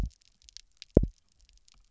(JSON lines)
{"label": "biophony, double pulse", "recorder": "SoundTrap 300"}